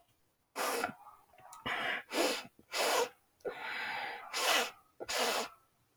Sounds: Sniff